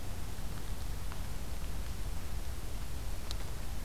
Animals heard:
forest ambience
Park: Acadia National Park